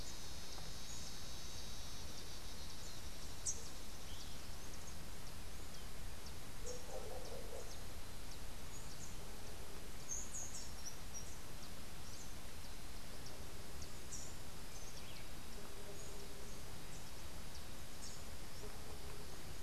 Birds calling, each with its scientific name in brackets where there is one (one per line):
Rufous-capped Warbler (Basileuterus rufifrons)
Rufous-tailed Hummingbird (Amazilia tzacatl)